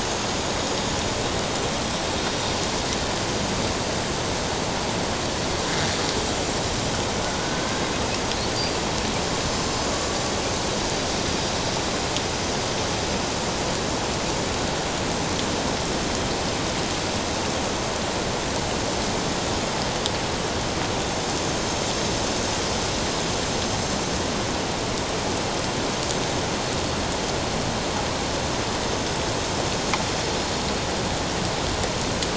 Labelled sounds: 7.4	7.7	killer whale, Bigg's (transient), 1.4 to 1.6 kHz

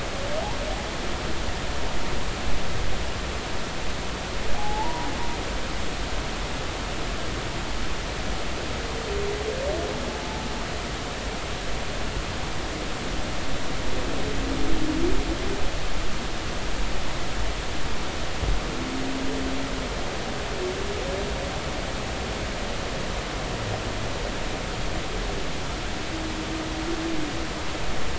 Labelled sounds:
4.5	5.1	humpback whale, 0.80 to 1.1 kHz

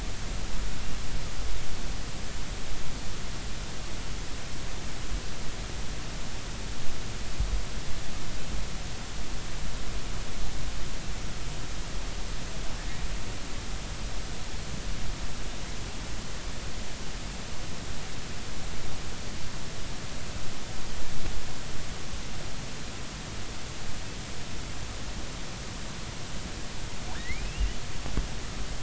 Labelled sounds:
27.1	27.8	killer whale, offshore, 1.6 to 3.1 kHz

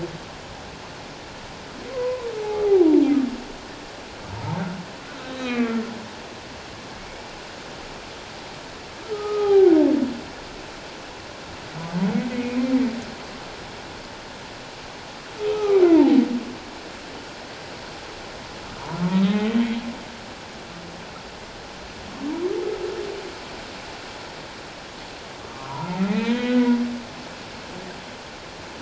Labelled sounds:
1.9	2.8	humpback whale, 0.78 to 1.2 kHz
5.2	5.8	humpback whale, 1.1 to 4.0 kHz
9.1	9.7	humpback whale, 0.78 to 1.3 kHz
12.3	12.6	humpback whale, 2.16 to 2.25 kHz
15.5	15.8	humpback whale, 1.1 to 2.7 kHz
18.8	19.6	humpback whale, 0.84 to 3.9 kHz
25.5	26.8	humpback whale, 0.84 to 2.2 kHz

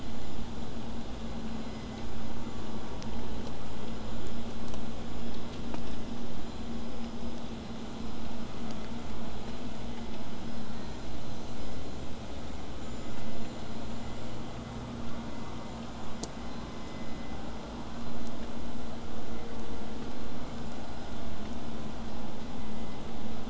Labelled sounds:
6.6	7.0	killer whale, whistle, 7.8 to 8.0 kHz

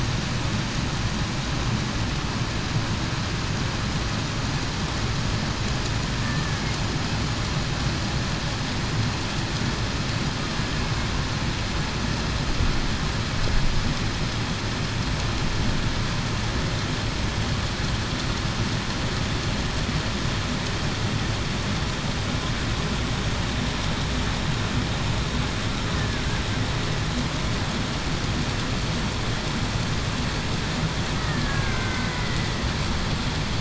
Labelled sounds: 31.1	32.1	killer whale, Bigg's (transient), 1.5 to 1.9 kHz

